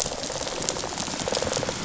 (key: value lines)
label: biophony, rattle response
recorder: SoundTrap 500